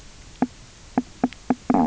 {"label": "biophony, knock croak", "recorder": "SoundTrap 300"}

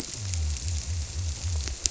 {"label": "biophony", "recorder": "SoundTrap 300"}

